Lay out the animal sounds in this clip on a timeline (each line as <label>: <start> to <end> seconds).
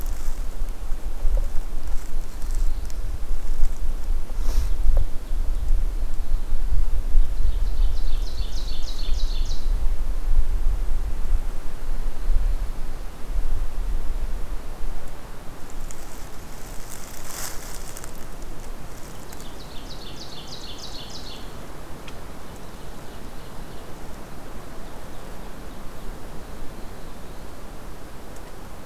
Black-throated Blue Warbler (Setophaga caerulescens): 1.8 to 3.3 seconds
Ovenbird (Seiurus aurocapilla): 4.1 to 5.8 seconds
Ovenbird (Seiurus aurocapilla): 7.1 to 9.8 seconds
Ovenbird (Seiurus aurocapilla): 19.0 to 21.6 seconds
Ovenbird (Seiurus aurocapilla): 22.2 to 24.0 seconds
Ovenbird (Seiurus aurocapilla): 24.7 to 26.3 seconds
Black-throated Blue Warbler (Setophaga caerulescens): 26.6 to 27.8 seconds